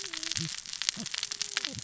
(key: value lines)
label: biophony, cascading saw
recorder: SoundTrap 600 or HydroMoth